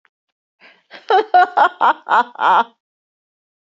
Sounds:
Laughter